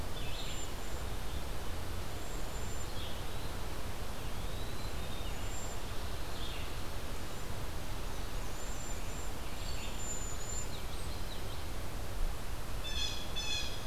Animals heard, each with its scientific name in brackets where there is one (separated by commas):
Red-eyed Vireo (Vireo olivaceus), Cedar Waxwing (Bombycilla cedrorum), Blue Jay (Cyanocitta cristata), Common Yellowthroat (Geothlypis trichas), Eastern Wood-Pewee (Contopus virens)